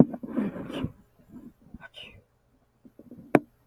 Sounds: Sneeze